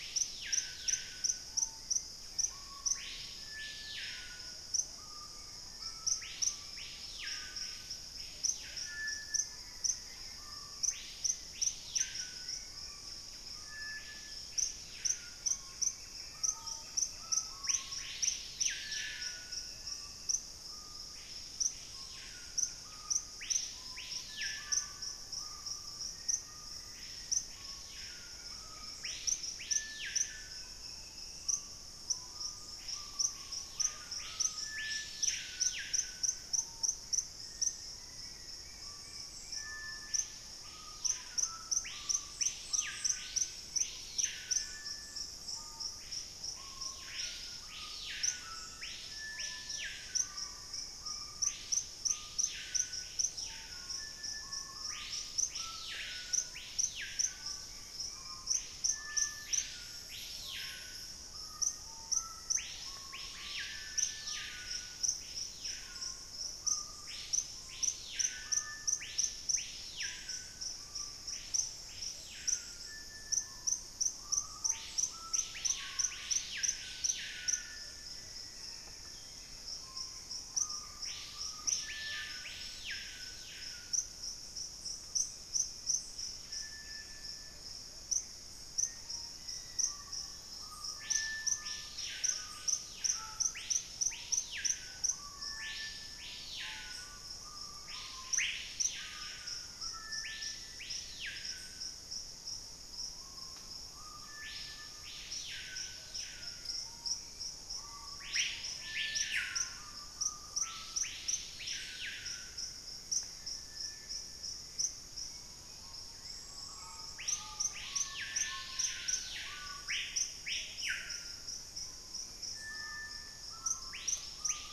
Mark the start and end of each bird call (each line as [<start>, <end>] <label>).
[0.00, 124.72] Screaming Piha (Lipaugus vociferans)
[1.72, 3.72] Hauxwell's Thrush (Turdus hauxwelli)
[1.92, 3.02] Buff-breasted Wren (Cantorchilus leucotis)
[4.82, 7.42] Bright-rumped Attila (Attila spadiceus)
[8.52, 11.02] Black-faced Antthrush (Formicarius analis)
[9.32, 17.62] Hauxwell's Thrush (Turdus hauxwelli)
[9.42, 13.62] Buff-breasted Wren (Cantorchilus leucotis)
[18.62, 20.52] Black-capped Becard (Pachyramphus marginatus)
[22.32, 23.52] Buff-breasted Wren (Cantorchilus leucotis)
[25.32, 27.62] Gray Antbird (Cercomacra cinerascens)
[25.92, 28.22] Black-faced Antthrush (Formicarius analis)
[27.72, 29.82] Bright-rumped Attila (Attila spadiceus)
[30.32, 31.92] Black-capped Becard (Pachyramphus marginatus)
[35.92, 38.22] Gray Antbird (Cercomacra cinerascens)
[37.12, 39.32] Black-faced Antthrush (Formicarius analis)
[37.92, 45.12] Bright-rumped Attila (Attila spadiceus)
[48.62, 50.92] Black-faced Antthrush (Formicarius analis)
[49.92, 51.82] Bright-rumped Attila (Attila spadiceus)
[56.82, 58.72] Bright-rumped Attila (Attila spadiceus)
[61.22, 63.52] Black-faced Antthrush (Formicarius analis)
[77.82, 81.12] Buff-breasted Wren (Cantorchilus leucotis)
[79.72, 81.42] Gray Antbird (Cercomacra cinerascens)
[85.22, 87.52] Buff-breasted Wren (Cantorchilus leucotis)
[85.62, 87.72] Black-faced Antthrush (Formicarius analis)
[87.42, 89.52] Gray Antbird (Cercomacra cinerascens)
[88.42, 90.72] Black-faced Antthrush (Formicarius analis)
[99.82, 101.72] Black-faced Antthrush (Formicarius analis)
[106.02, 123.92] Hauxwell's Thrush (Turdus hauxwelli)